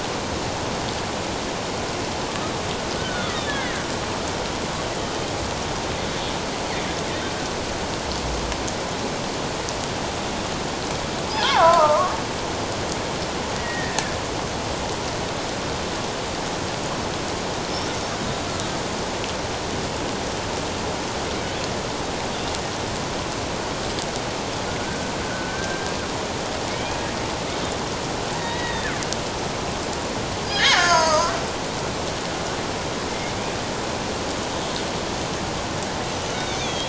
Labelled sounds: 3.0	3.6	killer whale, Bigg's (transient), 1.4 to 3.8 kHz
11.3	12.1	killer whale, Bigg's (transient), 0.78 to 3.6 kHz
13.6	14.1	killer whale, Bigg's (transient), 1.6 to 2.0 kHz
24.8	25.9	killer whale, Bigg's (transient), 1.4 to 1.6 kHz
26.7	27.0	killer whale, Bigg's (transient), 2.1 to 2.5 kHz
28.4	28.9	killer whale, Bigg's (transient), 1.8 to 3.9 kHz
30.5	31.4	killer whale, Bigg's (transient), 0.88 to 6.7 kHz
36.3	36.8	killer whale, Bigg's (transient), 2.2 to 3.9 kHz

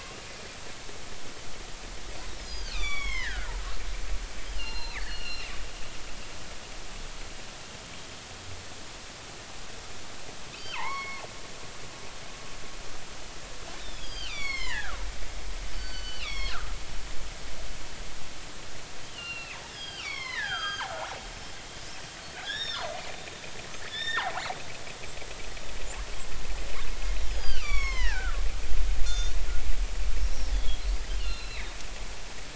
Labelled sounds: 2.4	3.5	killer whale, northern resident, G clan, 0.93 to 7.2 kHz
4.5	5.5	killer whale, northern resident, G clan, 0.83 to 5.1 kHz
10.5	11.2	killer whale, northern resident, G clan, 0.80 to 3.2 kHz
13.8	15.0	killer whale, northern resident, G clan, 0.80 to 7.8 kHz
15.7	16.6	killer whale, northern resident, G clan, 0.99 to 5.8 kHz
19.0	21.5	killer whale, northern resident, G clan, 0.90 to 6.5 kHz
22.3	22.9	killer whale, northern resident, G clan, 1.4 to 5.6 kHz
23.9	24.3	killer whale, northern resident, G clan, 1.2 to 5.5 kHz
27.3	29.3	killer whale, northern resident, G clan, 0.80 to 7.0 kHz
30.5	31.7	killer whale, northern resident, G clan, 1.9 to 4.5 kHz

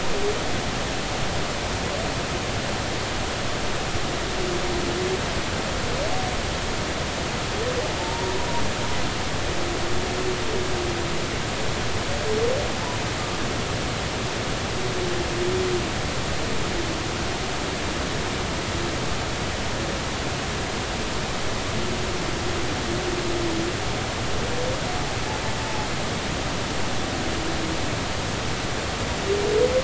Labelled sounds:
8.0	8.3	humpback whale, 0.86 to 0.99 kHz
25.6	25.9	humpback whale, 0.80 to 0.93 kHz

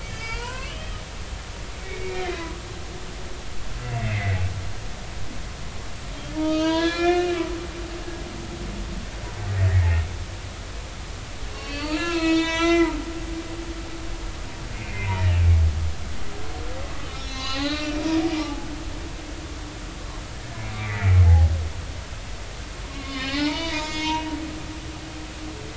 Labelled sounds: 0.0	0.7	humpback whale, 0.86 to 5.2 kHz
1.8	2.5	humpback whale, 1.9 to 2.3 kHz
4.0	4.4	humpback whale, 1.9 to 2.2 kHz
6.4	7.3	humpback whale, 0.90 to 5.2 kHz
9.8	10.0	humpback whale, 2.1 to 2.3 kHz
11.5	13.0	humpback whale, 0.86 to 8.0 kHz
14.7	15.3	humpback whale, 0.83 to 2.2 kHz
17.0	18.7	humpback whale, 0.80 to 4.1 kHz
20.7	21.5	humpback whale, 0.80 to 2.5 kHz
22.9	24.3	humpback whale, 0.80 to 6.7 kHz

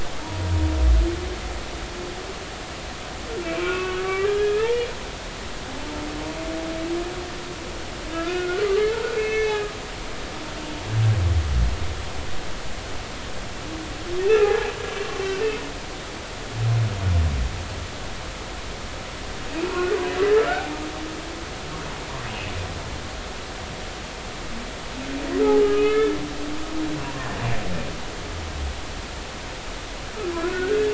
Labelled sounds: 3.4	4.9	humpback whale, 0.99 to 2.8 kHz
8.1	9.7	humpback whale, 1.1 to 6.1 kHz
14.3	14.7	humpback whale, 0.80 to 2.8 kHz
19.5	20.7	humpback whale, 1.3 to 2.7 kHz
25.6	26.2	humpback whale, 1.2 to 3.6 kHz
30.3	30.9	humpback whale, 1.3 to 1.8 kHz

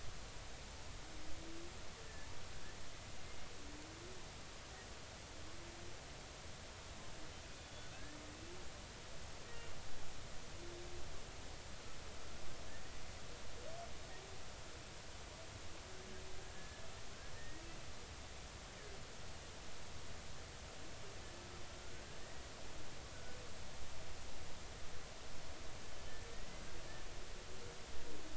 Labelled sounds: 2.0	2.3	humpback whale, 1.7 to 1.8 kHz
7.4	8.2	humpback whale, 1.5 to 3.6 kHz
16.4	16.8	humpback whale, 1.6 to 1.8 kHz
17.4	17.6	humpback whale, 1.8 to 2.0 kHz
21.7	22.5	humpback whale, 1.3 to 2.0 kHz
26.3	26.6	humpback whale, 1.8 to 2.1 kHz

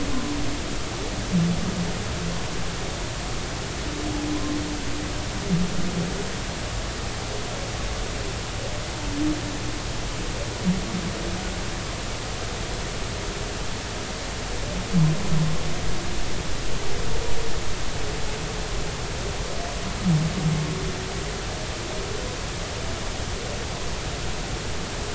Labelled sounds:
0.1	0.4	humpback whale, 0.93 to 1.1 kHz

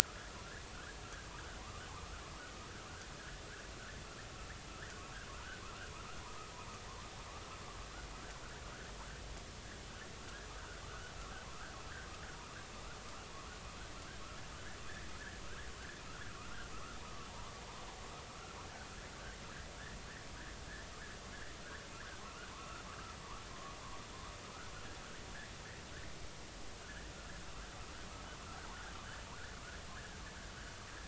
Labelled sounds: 4.7	5.6	vessel noise, 1.2 to 2.0 kHz
10.6	11.1	vessel noise, 1.1 to 1.6 kHz
16.3	17.5	vessel noise, 0.83 to 1.7 kHz
22.2	22.8	vessel noise, 0.83 to 1.6 kHz
23.5	23.7	vessel noise, 0.99 to 1.2 kHz
26.8	27.1	vessel noise, 1.4 to 1.9 kHz

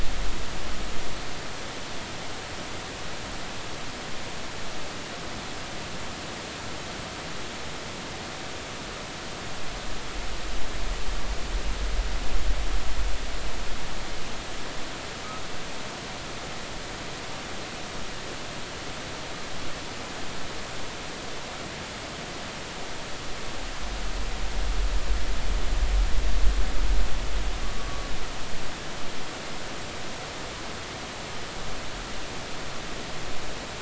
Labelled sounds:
27.8	28.0	humpback whale, 1.1 to 1.2 kHz

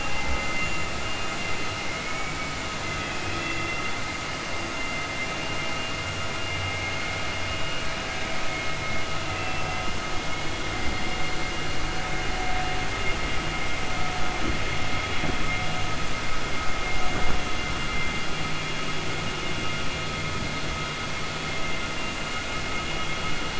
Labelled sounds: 1.8	2.6	vessel noise, 1.5 to 3.0 kHz

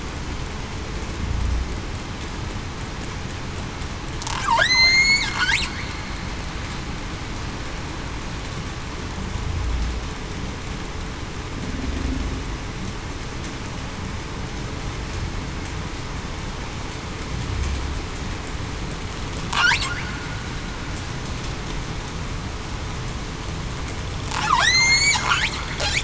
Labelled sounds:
4.6	5.3	killer whale, southern resident, 1.4 to 8.0 kHz
24.6	25.1	killer whale, southern resident, 1.5 to 8.0 kHz

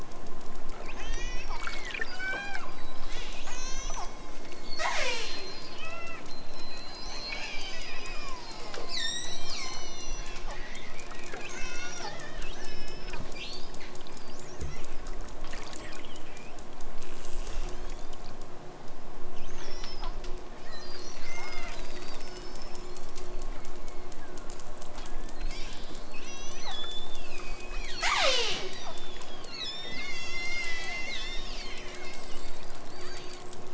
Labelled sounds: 0.8	4.3	killer whale, southern Alaska resident, 1.1 to 8.0 kHz
4.7	10.5	killer whale, southern Alaska resident, 0.23 to 8.0 kHz
11.5	12.2	killer whale, southern Alaska resident, 1.0 to 8.0 kHz
12.5	13.2	killer whale, southern Alaska resident, 1.2 to 8.0 kHz
17.0	18.3	killer whale, southern Alaska resident, 2.1 to 8.0 kHz
19.5	20.1	killer whale, southern Alaska resident, 1.2 to 7.1 kHz
20.6	22.9	killer whale, southern Alaska resident, 1.6 to 8.0 kHz
23.5	24.6	killer whale, southern Alaska resident, 1.4 to 4.8 kHz
25.3	32.1	killer whale, southern Alaska resident, 0.28 to 8.0 kHz
32.8	33.5	killer whale, southern Alaska resident, 1.2 to 7.9 kHz

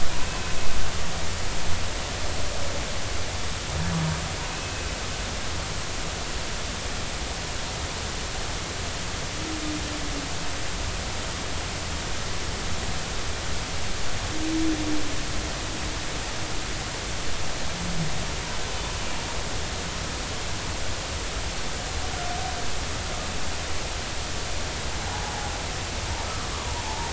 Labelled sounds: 0.2	0.6	humpback whale, 2.5 to 2.7 kHz
26.6	27.1	humpback whale, 0.83 to 0.99 kHz

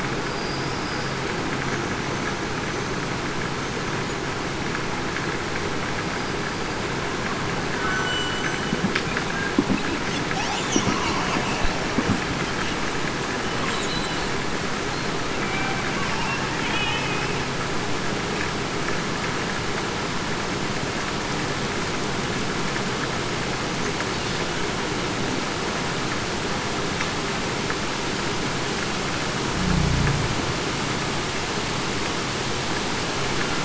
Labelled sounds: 0.3	0.6	killer whale, Bigg's (transient), 5.1 to 5.2 kHz
13.7	14.2	killer whale, Bigg's (transient), 3.9 to 4.0 kHz
15.4	15.7	killer whale, Bigg's (transient), 2.3 to 2.4 kHz
16.9	17.3	killer whale, Bigg's (transient), 2.5 to 2.6 kHz

